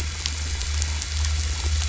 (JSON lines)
{"label": "anthrophony, boat engine", "recorder": "SoundTrap 500"}